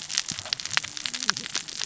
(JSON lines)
{"label": "biophony, cascading saw", "recorder": "SoundTrap 600 or HydroMoth"}